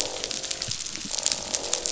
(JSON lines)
{"label": "biophony, croak", "recorder": "SoundTrap 500"}
{"label": "biophony", "recorder": "SoundTrap 500"}